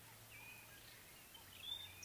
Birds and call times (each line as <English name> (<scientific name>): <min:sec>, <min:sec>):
White-browed Robin-Chat (Cossypha heuglini): 0:01.8